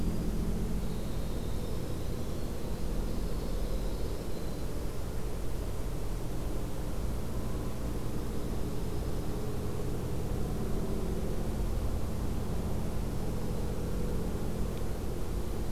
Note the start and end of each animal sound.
[0.00, 5.17] Winter Wren (Troglodytes hiemalis)
[3.01, 4.29] Dark-eyed Junco (Junco hyemalis)
[8.01, 9.66] Dark-eyed Junco (Junco hyemalis)

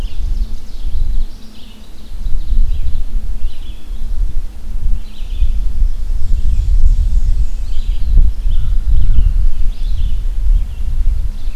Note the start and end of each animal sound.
[0.00, 3.07] Ovenbird (Seiurus aurocapilla)
[0.00, 11.55] Red-eyed Vireo (Vireo olivaceus)
[5.16, 7.87] Ovenbird (Seiurus aurocapilla)
[6.06, 7.83] Black-and-white Warbler (Mniotilta varia)
[8.33, 9.52] American Crow (Corvus brachyrhynchos)

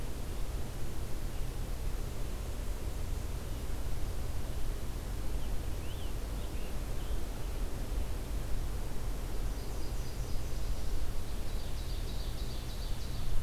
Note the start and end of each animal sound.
[5.15, 7.25] Scarlet Tanager (Piranga olivacea)
[9.38, 10.98] Nashville Warbler (Leiothlypis ruficapilla)
[11.39, 13.43] Ovenbird (Seiurus aurocapilla)

